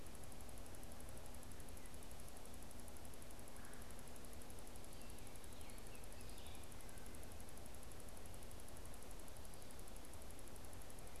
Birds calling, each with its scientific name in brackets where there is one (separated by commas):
Baltimore Oriole (Icterus galbula), Red-eyed Vireo (Vireo olivaceus)